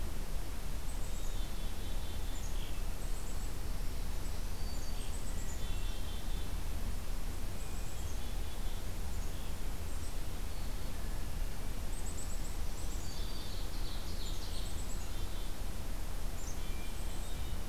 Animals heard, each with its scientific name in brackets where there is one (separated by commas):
Black-capped Chickadee (Poecile atricapillus), Ovenbird (Seiurus aurocapilla), Hermit Thrush (Catharus guttatus), Black-throated Green Warbler (Setophaga virens)